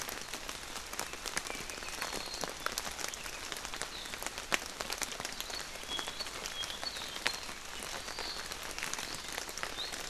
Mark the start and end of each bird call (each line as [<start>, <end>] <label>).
[5.87, 7.47] Apapane (Himatione sanguinea)